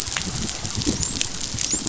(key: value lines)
label: biophony, dolphin
recorder: SoundTrap 500